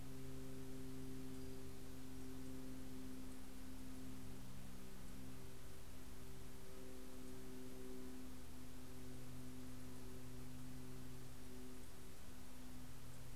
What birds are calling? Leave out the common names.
Setophaga occidentalis